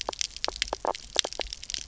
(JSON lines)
{"label": "biophony, knock croak", "recorder": "SoundTrap 300"}